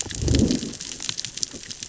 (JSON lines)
{"label": "biophony, growl", "recorder": "SoundTrap 600 or HydroMoth"}